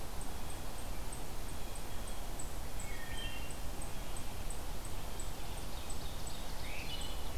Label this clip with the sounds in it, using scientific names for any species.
unknown mammal, Hylocichla mustelina, Seiurus aurocapilla